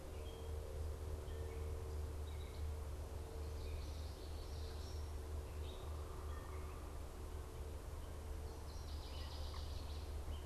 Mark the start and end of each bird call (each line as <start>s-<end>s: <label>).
0.0s-10.5s: Gray Catbird (Dumetella carolinensis)
3.2s-5.3s: Common Yellowthroat (Geothlypis trichas)
5.6s-7.1s: unidentified bird
8.5s-10.2s: Northern Waterthrush (Parkesia noveboracensis)